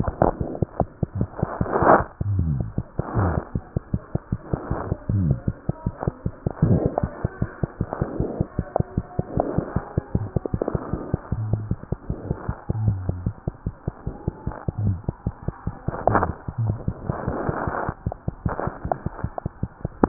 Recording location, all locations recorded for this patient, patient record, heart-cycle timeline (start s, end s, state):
mitral valve (MV)
aortic valve (AV)+mitral valve (MV)
#Age: Infant
#Sex: Female
#Height: 68.0 cm
#Weight: 8.385 kg
#Pregnancy status: False
#Murmur: Absent
#Murmur locations: nan
#Most audible location: nan
#Systolic murmur timing: nan
#Systolic murmur shape: nan
#Systolic murmur grading: nan
#Systolic murmur pitch: nan
#Systolic murmur quality: nan
#Diastolic murmur timing: nan
#Diastolic murmur shape: nan
#Diastolic murmur grading: nan
#Diastolic murmur pitch: nan
#Diastolic murmur quality: nan
#Outcome: Abnormal
#Campaign: 2015 screening campaign
0.00	7.39	unannotated
7.39	7.47	S1
7.47	7.61	systole
7.61	7.67	S2
7.67	7.79	diastole
7.79	7.86	S1
7.86	8.00	systole
8.00	8.05	S2
8.05	8.17	diastole
8.17	8.24	S1
8.24	8.38	systole
8.38	8.44	S2
8.44	8.57	diastole
8.57	8.62	S1
8.62	8.78	systole
8.78	8.83	S2
8.83	8.96	diastole
8.96	9.02	S1
9.02	9.17	systole
9.17	9.22	S2
9.22	9.35	diastole
9.35	9.41	S1
9.41	9.56	systole
9.56	9.62	S2
9.62	9.74	diastole
9.74	9.81	S1
9.81	9.96	systole
9.96	10.01	S2
10.01	10.14	diastole
10.14	10.19	S1
10.19	10.34	systole
10.34	10.39	S2
10.39	10.52	diastole
10.52	10.58	S1
10.58	10.72	systole
10.72	10.79	S2
10.79	10.91	diastole
10.91	10.97	S1
10.97	11.12	systole
11.12	11.17	S2
11.17	11.31	diastole
11.31	11.37	S1
11.37	11.51	systole
11.51	11.57	S2
11.57	11.69	diastole
11.69	11.77	S1
11.77	11.90	systole
11.90	11.96	S2
11.96	12.08	diastole
12.08	12.14	S1
12.14	12.29	systole
12.29	12.33	S2
12.33	12.46	diastole
12.46	12.53	S1
12.53	12.66	systole
12.66	12.73	S2
12.73	20.08	unannotated